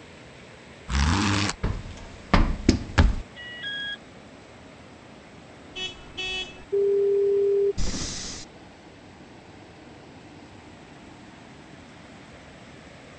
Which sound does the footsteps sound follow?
zipper